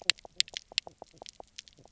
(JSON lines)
{"label": "biophony, knock croak", "recorder": "SoundTrap 300"}